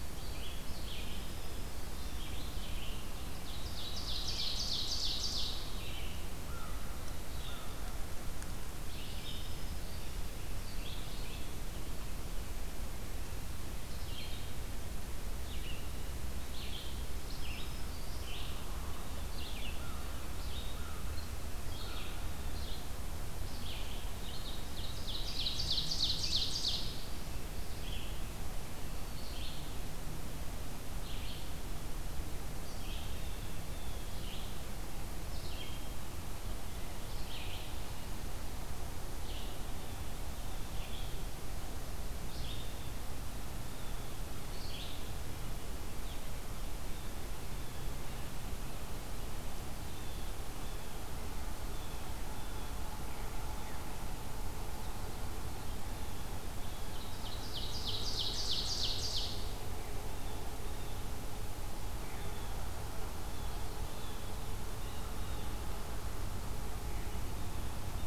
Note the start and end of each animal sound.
[0.00, 45.06] Red-eyed Vireo (Vireo olivaceus)
[0.76, 2.22] Black-throated Green Warbler (Setophaga virens)
[3.46, 5.73] Ovenbird (Seiurus aurocapilla)
[6.41, 7.90] American Crow (Corvus brachyrhynchos)
[8.91, 10.28] Black-throated Green Warbler (Setophaga virens)
[17.10, 18.48] Black-throated Green Warbler (Setophaga virens)
[19.68, 22.13] American Crow (Corvus brachyrhynchos)
[24.23, 27.08] Ovenbird (Seiurus aurocapilla)
[33.05, 34.17] Blue Jay (Cyanocitta cristata)
[47.38, 56.61] Blue Jay (Cyanocitta cristata)
[56.84, 59.52] Ovenbird (Seiurus aurocapilla)
[59.82, 65.48] Blue Jay (Cyanocitta cristata)

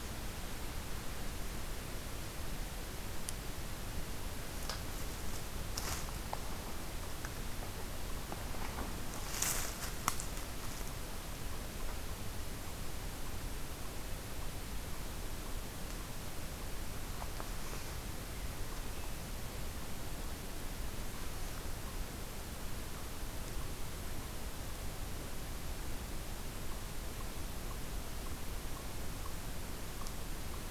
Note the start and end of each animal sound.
[18.46, 30.70] Eastern Chipmunk (Tamias striatus)

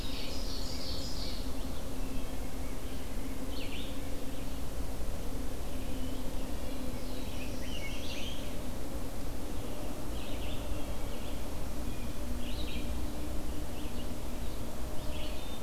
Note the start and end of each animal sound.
[0.00, 1.68] Ovenbird (Seiurus aurocapilla)
[0.00, 15.62] Red-eyed Vireo (Vireo olivaceus)
[6.49, 8.63] Black-throated Blue Warbler (Setophaga caerulescens)
[6.76, 8.83] Rose-breasted Grosbeak (Pheucticus ludovicianus)

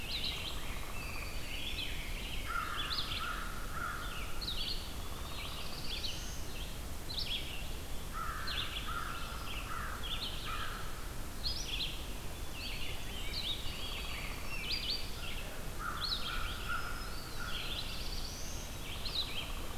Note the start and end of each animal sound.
[0.00, 3.29] Rose-breasted Grosbeak (Pheucticus ludovicianus)
[0.00, 4.98] Red-eyed Vireo (Vireo olivaceus)
[0.28, 1.39] Downy Woodpecker (Dryobates pubescens)
[2.33, 4.51] American Crow (Corvus brachyrhynchos)
[4.22, 5.30] Eastern Wood-Pewee (Contopus virens)
[4.80, 6.73] Black-throated Blue Warbler (Setophaga caerulescens)
[4.85, 5.96] Downy Woodpecker (Dryobates pubescens)
[5.25, 19.77] Red-eyed Vireo (Vireo olivaceus)
[7.90, 10.84] American Crow (Corvus brachyrhynchos)
[12.47, 13.52] Eastern Wood-Pewee (Contopus virens)
[13.25, 14.78] Song Sparrow (Melospiza melodia)
[15.65, 17.70] American Crow (Corvus brachyrhynchos)
[16.20, 17.41] Black-throated Green Warbler (Setophaga virens)
[16.97, 17.67] Eastern Wood-Pewee (Contopus virens)
[17.29, 19.01] Black-throated Blue Warbler (Setophaga caerulescens)

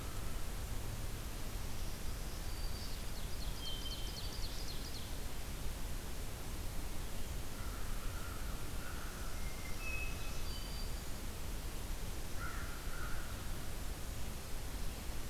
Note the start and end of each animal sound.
[1.62, 3.03] Black-throated Green Warbler (Setophaga virens)
[2.71, 5.15] Ovenbird (Seiurus aurocapilla)
[7.41, 9.48] American Crow (Corvus brachyrhynchos)
[8.90, 11.26] Hermit Thrush (Catharus guttatus)
[9.66, 11.35] Black-throated Green Warbler (Setophaga virens)
[12.21, 13.62] American Crow (Corvus brachyrhynchos)

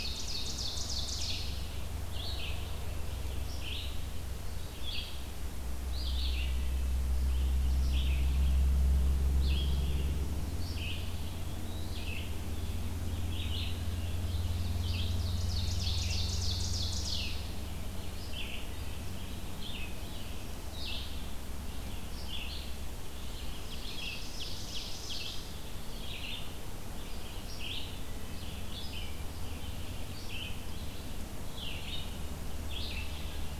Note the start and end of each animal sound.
[0.00, 1.80] Ovenbird (Seiurus aurocapilla)
[0.00, 18.61] Red-eyed Vireo (Vireo olivaceus)
[14.69, 17.45] Ovenbird (Seiurus aurocapilla)
[19.37, 33.59] Red-eyed Vireo (Vireo olivaceus)
[23.34, 25.63] Ovenbird (Seiurus aurocapilla)

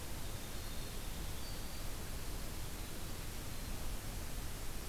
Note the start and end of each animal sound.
[0.00, 4.08] Winter Wren (Troglodytes hiemalis)
[1.25, 1.98] Black-throated Green Warbler (Setophaga virens)

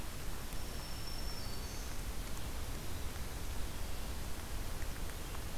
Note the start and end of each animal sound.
[0.25, 2.48] Black-throated Green Warbler (Setophaga virens)

